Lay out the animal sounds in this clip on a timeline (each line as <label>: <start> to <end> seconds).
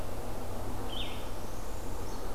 Northern Parula (Setophaga americana): 0.9 to 2.3 seconds